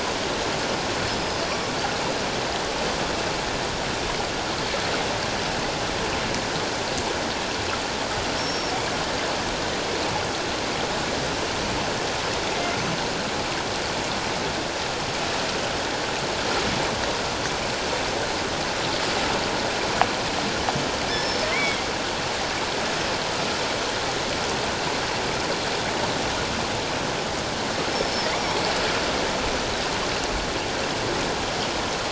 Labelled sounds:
1.2	1.4	killer whale, northern resident, G clan, 5.0 to 5.1 kHz
8.4	8.8	killer whale, northern resident, G clan, 5.2 to 5.6 kHz
21.1	21.9	killer whale, northern resident, G clan, 2.0 to 5.4 kHz
27.9	28.3	killer whale, northern resident, G clan, 5.1 to 5.5 kHz

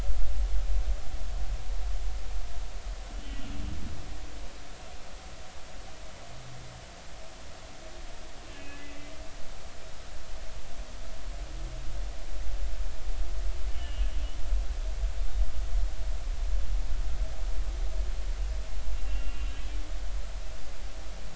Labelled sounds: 8.5	8.8	humpback whale, 2.5 to 2.8 kHz
13.7	14.1	humpback whale, 2.8 to 3.2 kHz
15.2	15.4	humpback whale, 3.6 to 3.8 kHz
19.1	19.5	humpback whale, 2.7 to 2.8 kHz

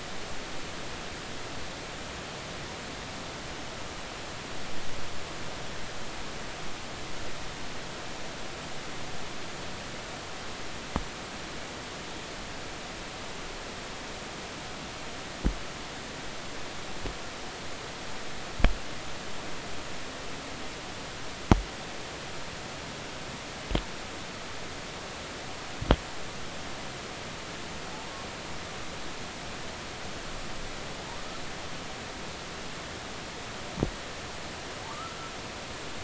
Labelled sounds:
34.8	35.2	humpback whale, 0.83 to 1.4 kHz

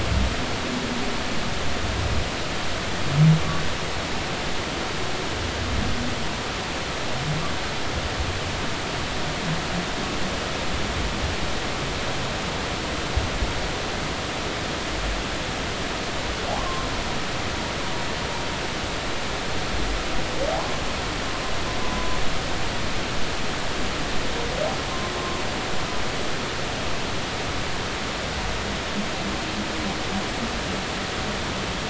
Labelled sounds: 16.5	16.9	humpback whale, 0.80 to 1.2 kHz
21.8	22.2	humpback whale, 0.96 to 1.0 kHz

